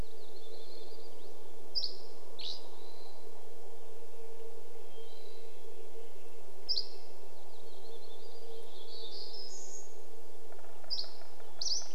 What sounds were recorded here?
warbler song, Dusky Flycatcher song, Hermit Thrush call, Red-breasted Nuthatch song, airplane, Hermit Thrush song, woodpecker drumming